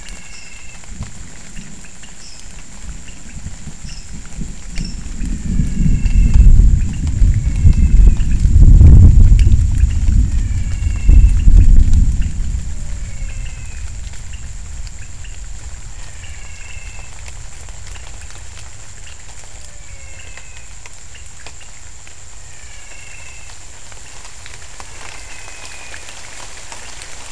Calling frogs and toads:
pointedbelly frog (Leptodactylus podicipinus), lesser tree frog (Dendropsophus minutus), menwig frog (Physalaemus albonotatus)
7:00pm

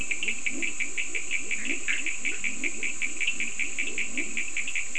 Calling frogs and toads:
Leptodactylus latrans, Cochran's lime tree frog (Sphaenorhynchus surdus), Bischoff's tree frog (Boana bischoffi)
4:00am

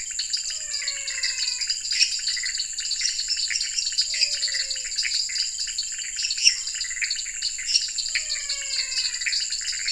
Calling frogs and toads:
dwarf tree frog (Dendropsophus nanus), pointedbelly frog (Leptodactylus podicipinus), menwig frog (Physalaemus albonotatus), lesser tree frog (Dendropsophus minutus), Scinax fuscovarius, Pithecopus azureus
9:00pm

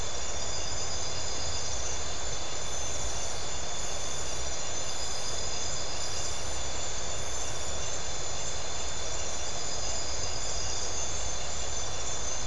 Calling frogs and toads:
none
9:45pm

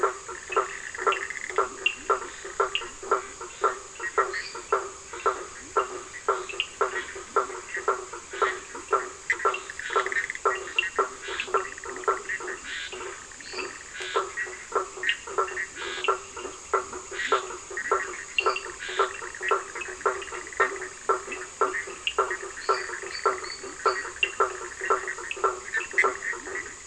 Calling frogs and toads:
blacksmith tree frog (Boana faber), Cochran's lime tree frog (Sphaenorhynchus surdus), lesser tree frog (Dendropsophus minutus), Scinax perereca
10:15pm

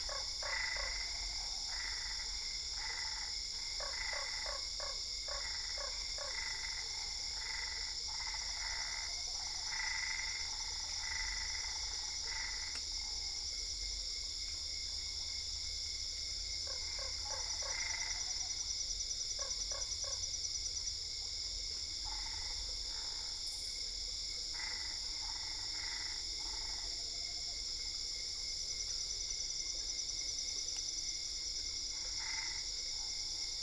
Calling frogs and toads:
Usina tree frog (Boana lundii), Boana albopunctata
9:15pm

